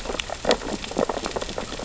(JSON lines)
{"label": "biophony, sea urchins (Echinidae)", "recorder": "SoundTrap 600 or HydroMoth"}